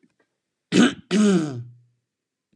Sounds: Throat clearing